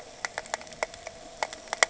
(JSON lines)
{"label": "anthrophony, boat engine", "recorder": "HydroMoth"}